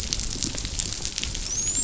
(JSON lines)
{"label": "biophony, dolphin", "recorder": "SoundTrap 500"}